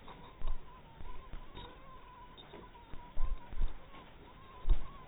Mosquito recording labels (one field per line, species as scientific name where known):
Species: mosquito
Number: one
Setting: cup